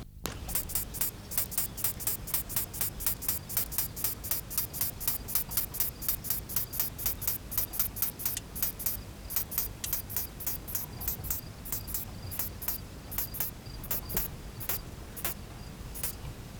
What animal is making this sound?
Poecilimon mytilenensis, an orthopteran